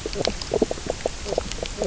{"label": "biophony, knock croak", "recorder": "SoundTrap 300"}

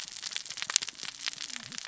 {"label": "biophony, cascading saw", "recorder": "SoundTrap 600 or HydroMoth"}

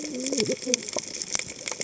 {"label": "biophony, cascading saw", "recorder": "HydroMoth"}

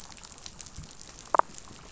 {"label": "biophony, damselfish", "recorder": "SoundTrap 500"}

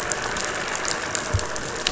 {"label": "anthrophony, boat engine", "recorder": "SoundTrap 500"}
{"label": "biophony", "recorder": "SoundTrap 500"}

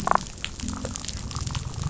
{"label": "biophony, damselfish", "recorder": "SoundTrap 500"}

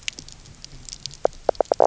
{"label": "biophony, knock croak", "recorder": "SoundTrap 300"}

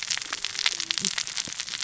{"label": "biophony, cascading saw", "recorder": "SoundTrap 600 or HydroMoth"}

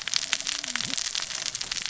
{"label": "biophony, cascading saw", "recorder": "SoundTrap 600 or HydroMoth"}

